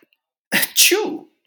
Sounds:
Sneeze